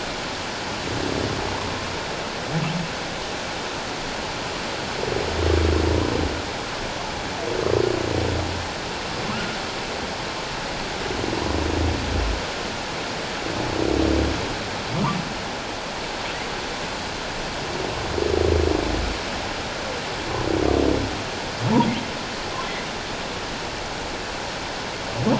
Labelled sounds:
9.3	9.6	humpback whale, 1.0 to 1.6 kHz

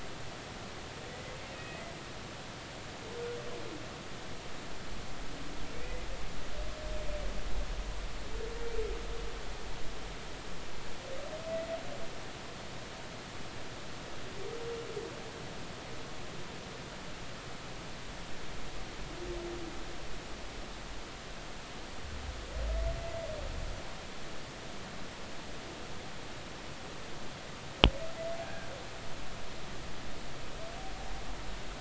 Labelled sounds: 1.5	1.9	humpback whale, 1.8 to 2.6 kHz
5.8	6.1	humpback whale, 1.9 to 2.1 kHz
28.4	28.7	humpback whale, 1.5 to 1.8 kHz

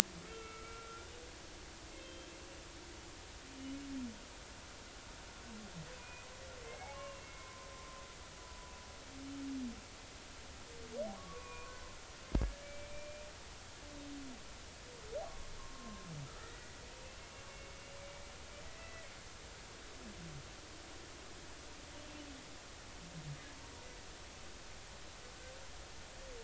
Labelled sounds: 0.2	1.1	humpback whale, 1.2 to 2.8 kHz
2.0	2.3	humpback whale, 3.1 to 3.3 kHz
6.0	6.3	humpback whale, 2.4 to 2.5 kHz
6.7	7.7	humpback whale, 0.80 to 2.9 kHz
11.2	11.7	humpback whale, 0.93 to 2.5 kHz
12.3	13.2	humpback whale, 1.6 to 2.4 kHz
15.6	16.8	humpback whale, 0.93 to 2.0 kHz
17.5	18.3	humpback whale, 2.1 to 2.4 kHz
18.8	19.1	humpback whale, 1.9 to 2.0 kHz

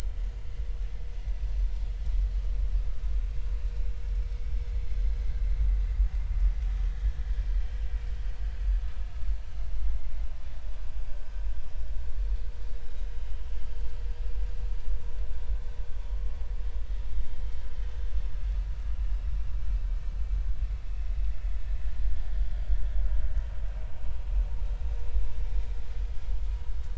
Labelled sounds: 0.4	0.7	vessel noise, 2.0 to 2.1 kHz

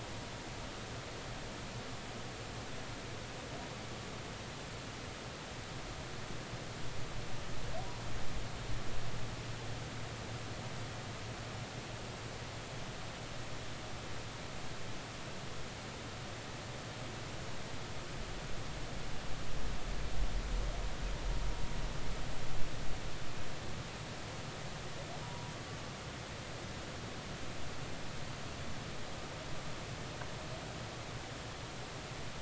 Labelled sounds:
25.2	25.5	humpback whale, 0.93 to 0.99 kHz

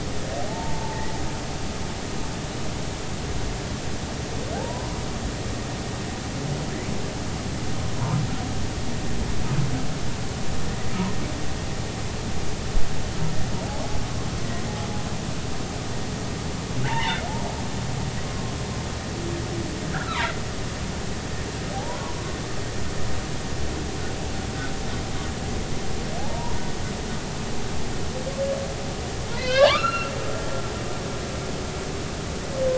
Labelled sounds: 0.5	1.1	humpback whale, 0.80 to 1.0 kHz
4.6	5.0	humpback whale, 0.80 to 1.1 kHz
16.8	17.2	humpback whale, 0.83 to 3.0 kHz
18.2	18.5	humpback whale, 1.0 to 1.2 kHz
19.9	20.3	humpback whale, 0.90 to 1.8 kHz
21.7	22.1	humpback whale, 0.80 to 1.2 kHz
27.2	27.6	humpback whale, 0.80 to 1.1 kHz
29.4	30.1	humpback whale, 0.80 to 4.3 kHz

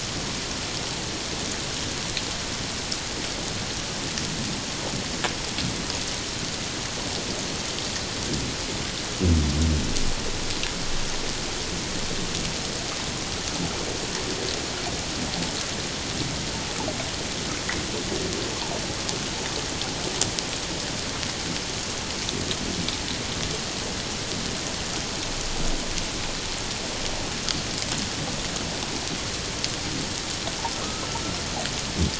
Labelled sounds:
30.8	31.0	humpback whale, 1.0 to 1.4 kHz

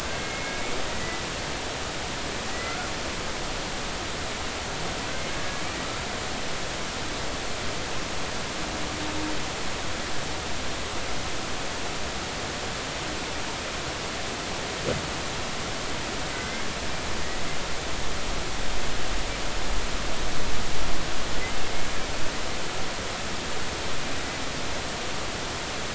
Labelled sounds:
2.5	2.9	humpback whale, 1.3 to 2.1 kHz
5.1	5.6	humpback whale, 1.6 to 2.2 kHz
16.3	16.7	humpback whale, 2.0 to 2.2 kHz

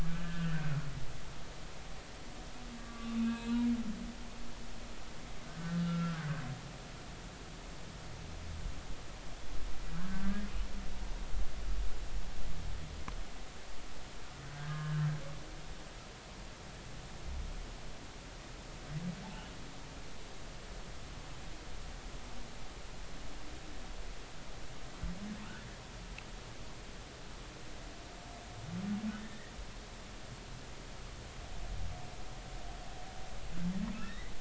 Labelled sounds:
0.1	0.5	humpback whale, 1.4 to 1.8 kHz
2.8	3.6	humpback whale, 1.1 to 4.1 kHz
5.4	6.2	humpback whale, 1.2 to 1.7 kHz
9.9	10.5	humpback whale, 1.3 to 1.9 kHz
14.5	15.1	humpback whale, 1.0 to 1.7 kHz
29.2	29.5	humpback whale, 1.8 to 2.0 kHz
34.0	34.3	humpback whale, 1.6 to 2.1 kHz

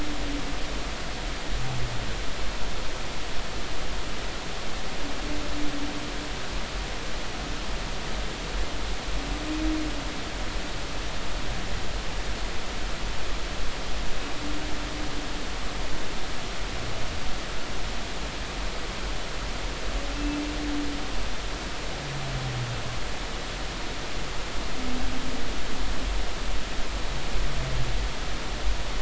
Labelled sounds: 20.1	20.4	humpback whale, 2.6 to 2.7 kHz

